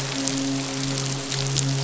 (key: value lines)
label: biophony, midshipman
recorder: SoundTrap 500